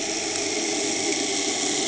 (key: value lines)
label: anthrophony, boat engine
recorder: HydroMoth